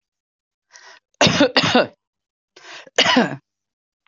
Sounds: Cough